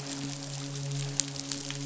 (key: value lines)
label: biophony, midshipman
recorder: SoundTrap 500